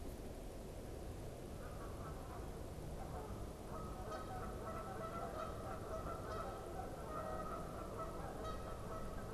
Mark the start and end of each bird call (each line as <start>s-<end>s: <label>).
1.4s-9.3s: Canada Goose (Branta canadensis)